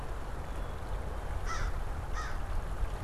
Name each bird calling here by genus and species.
Poecile atricapillus, Corvus brachyrhynchos